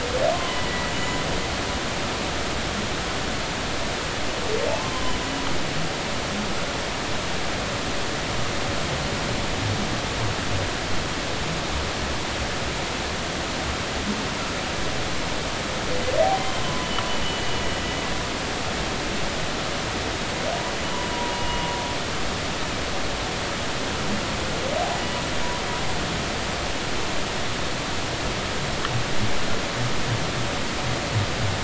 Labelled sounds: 0.3	1.2	humpback whale, 0.93 to 7.0 kHz
5.7	6.1	humpback whale, 0.83 to 1.1 kHz
16.6	17.6	humpback whale, 0.96 to 3.0 kHz
21.3	21.6	humpback whale, 2.8 to 2.9 kHz

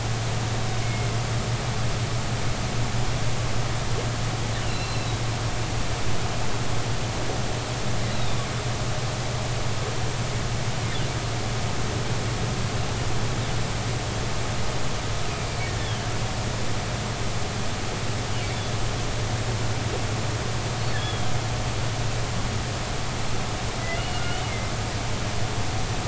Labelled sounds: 0.8	1.2	humpback whale, 2.1 to 2.2 kHz
4.6	5.2	humpback whale, 2.6 to 4.2 kHz
8.1	8.4	humpback whale, 3.5 to 4.1 kHz
15.8	16.1	humpback whale, 3.0 to 3.6 kHz
20.9	21.3	humpback whale, 3.1 to 3.6 kHz
23.9	24.7	humpback whale, 2.0 to 3.0 kHz

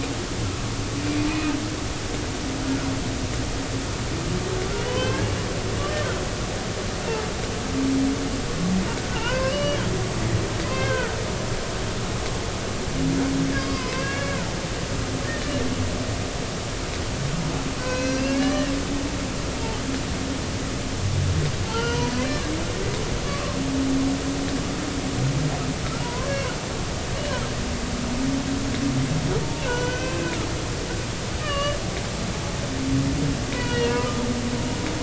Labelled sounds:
4.7	5.3	humpback whale, 1.5 to 3.3 kHz
9.1	9.8	humpback whale, 0.83 to 3.0 kHz
10.7	11.1	humpback whale, 1.3 to 2.2 kHz
13.5	14.3	humpback whale, 0.96 to 5.0 kHz
15.4	15.7	humpback whale, 1.7 to 1.9 kHz
17.8	18.7	humpback whale, 0.96 to 5.8 kHz
21.7	22.1	humpback whale, 0.83 to 6.0 kHz
23.2	23.6	humpback whale, 1.0 to 1.2 kHz
26.0	26.6	humpback whale, 0.90 to 1.7 kHz
29.6	30.4	humpback whale, 0.93 to 6.1 kHz
31.4	31.8	humpback whale, 1.1 to 4.7 kHz
33.5	34.2	humpback whale, 0.90 to 4.5 kHz

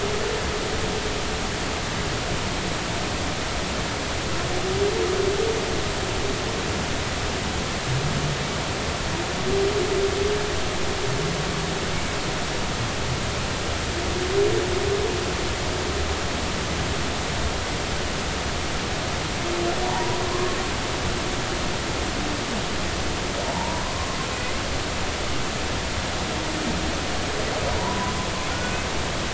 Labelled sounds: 19.8	20.6	humpback whale, 0.80 to 1.1 kHz
23.5	23.9	humpback whale, 0.83 to 1.1 kHz
27.8	28.1	humpback whale, 0.83 to 1.1 kHz

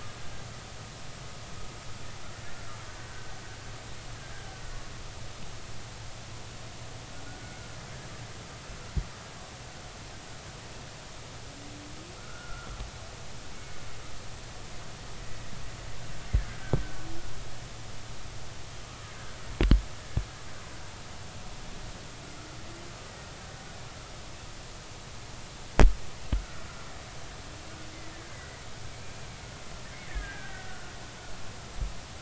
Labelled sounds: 2.9	3.3	killer whale, Bigg's (transient), 1.5 to 1.6 kHz
12.2	12.7	killer whale, Bigg's (transient), 1.2 to 1.5 kHz
13.5	13.8	killer whale, Bigg's (transient), 2.1 to 2.3 kHz
18.8	19.1	killer whale, Bigg's (transient), 1.1 to 1.4 kHz
23.4	23.6	killer whale, Bigg's (transient), 1.5 to 1.6 kHz
28.1	28.6	killer whale, Bigg's (transient), 1.5 to 2.1 kHz
30.1	30.9	killer whale, Bigg's (transient), 1.4 to 2.0 kHz

